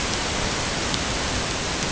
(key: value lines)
label: ambient
recorder: HydroMoth